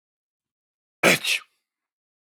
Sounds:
Sneeze